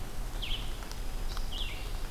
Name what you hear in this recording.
Red-eyed Vireo, Pine Warbler